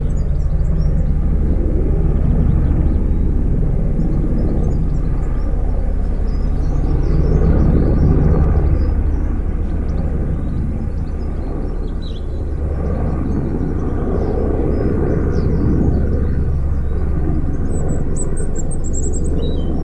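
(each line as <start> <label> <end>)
0.0 A helicopter is flying in the distance. 19.8
0.0 Birds tweeting. 19.8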